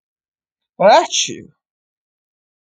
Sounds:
Sneeze